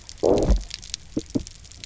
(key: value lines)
label: biophony, low growl
recorder: SoundTrap 300